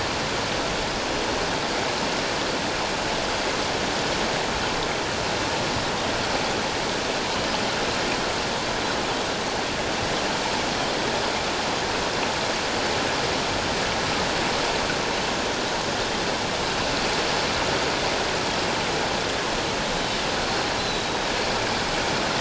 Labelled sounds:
20.4	21.1	Pacific white-sided dolphin, 3.8 to 4.3 kHz

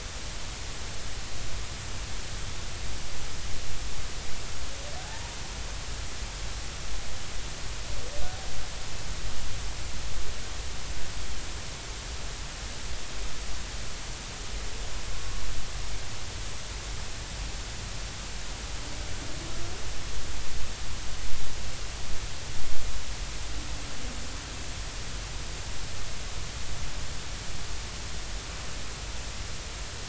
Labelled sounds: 5.0	5.3	humpback whale, 0.80 to 0.99 kHz

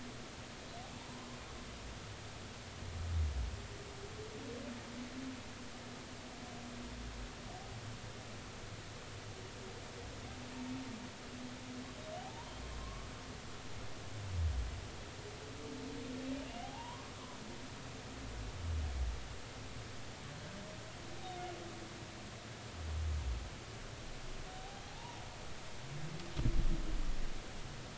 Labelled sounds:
2.0	2.3	humpback whale, 0.90 to 1.1 kHz
12.2	13.1	humpback whale, 0.80 to 1.3 kHz
16.6	17.1	humpback whale, 0.80 to 1.2 kHz
24.5	25.2	humpback whale, 0.80 to 1.0 kHz

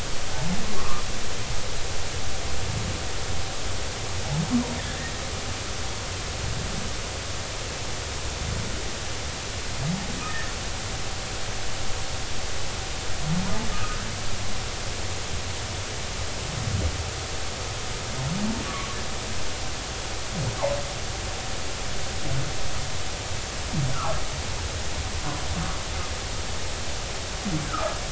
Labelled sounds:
0.8	1.0	humpback whale, 1.0 to 1.2 kHz
4.8	5.1	humpback whale, 1.5 to 1.9 kHz
10.3	10.5	humpback whale, 1.7 to 1.9 kHz
13.7	14.0	humpback whale, 1.2 to 1.4 kHz
23.9	24.2	humpback whale, 0.80 to 1.5 kHz
27.6	27.9	humpback whale, 1.1 to 1.7 kHz

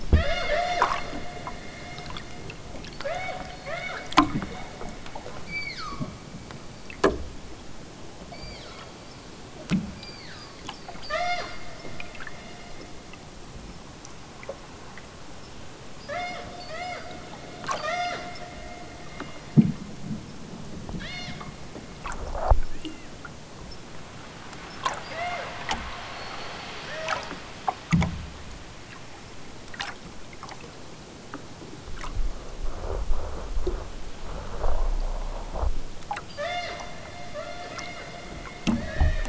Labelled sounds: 0.1	1.4	killer whale, southern Alaska resident, 0.32 to 8.0 kHz
3.0	4.1	killer whale, southern Alaska resident, 0.37 to 6.3 kHz
5.4	6.1	killer whale, southern Alaska resident, 0.78 to 7.2 kHz
8.3	8.9	killer whale, southern Alaska resident, 0.96 to 5.8 kHz
9.8	11.7	killer whale, southern Alaska resident, 0.37 to 8.0 kHz
16.0	17.2	killer whale, southern Alaska resident, 0.32 to 8.0 kHz
17.6	18.3	killer whale, southern Alaska resident, 0.37 to 8.0 kHz
21.0	21.4	killer whale, southern Alaska resident, 0.87 to 6.8 kHz
22.7	23.2	killer whale, southern Alaska resident, 1.1 to 2.9 kHz
25.1	25.6	killer whale, southern Alaska resident, 0.37 to 7.4 kHz
26.8	27.3	killer whale, southern Alaska resident, 0.32 to 2.3 kHz
36.3	36.9	killer whale, southern Alaska resident, 0.37 to 7.0 kHz
37.3	37.8	killer whale, southern Alaska resident, 0.87 to 4.6 kHz
38.8	39.2	killer whale, southern Alaska resident, 1.2 to 4.5 kHz

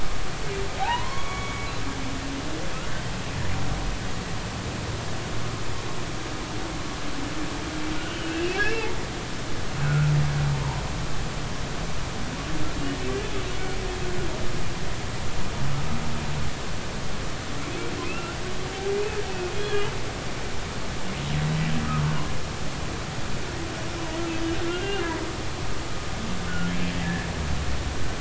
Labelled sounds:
0.8	1.7	humpback whale, 0.80 to 6.8 kHz
8.2	8.9	humpback whale, 2.5 to 2.9 kHz
9.8	10.1	humpback whale, 1.3 to 1.6 kHz
18.0	18.4	humpback whale, 1.2 to 2.8 kHz
18.9	19.9	humpback whale, 2.4 to 3.4 kHz
24.7	25.0	humpback whale, 2.7 to 2.9 kHz
27.0	27.3	humpback whale, 1.7 to 1.9 kHz

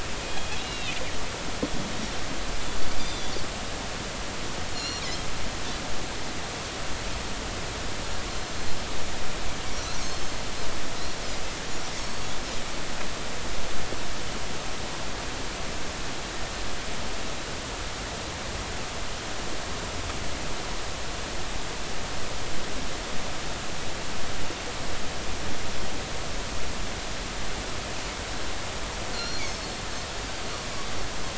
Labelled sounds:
0.6	1.0	Pacific white-sided dolphin, 2.4 to 4.1 kHz
3.0	3.3	Pacific white-sided dolphin, 3.4 to 3.7 kHz
4.7	5.0	Pacific white-sided dolphin, 2.7 to 5.8 kHz
12.0	12.3	Pacific white-sided dolphin, 4.3 to 4.5 kHz
29.1	29.4	Pacific white-sided dolphin, 4.1 to 4.5 kHz

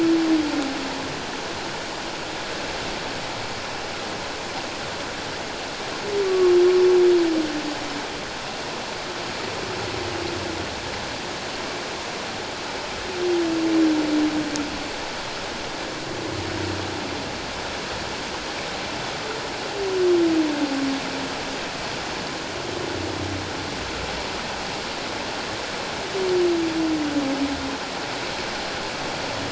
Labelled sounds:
6.2	6.6	humpback whale, 1.1 to 1.2 kHz

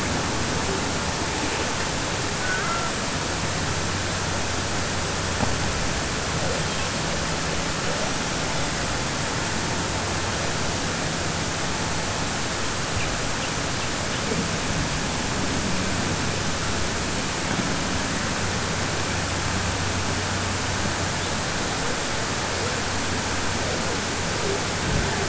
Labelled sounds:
2.4	2.9	killer whale, southern resident, 1.2 to 2.1 kHz

